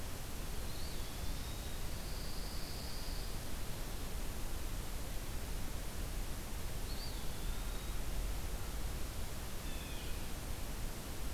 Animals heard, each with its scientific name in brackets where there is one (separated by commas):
Blue Jay (Cyanocitta cristata), Pine Warbler (Setophaga pinus), Eastern Wood-Pewee (Contopus virens)